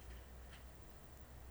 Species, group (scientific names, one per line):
Phaneroptera falcata
Orthoptera